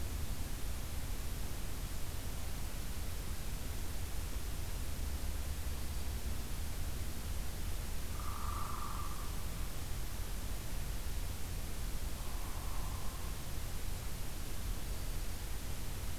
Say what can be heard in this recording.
Hairy Woodpecker